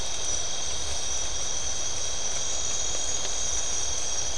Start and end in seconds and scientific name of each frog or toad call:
none